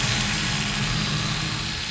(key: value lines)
label: anthrophony, boat engine
recorder: SoundTrap 500